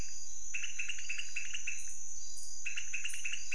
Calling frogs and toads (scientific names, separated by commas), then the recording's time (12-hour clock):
Leptodactylus podicipinus
2:30am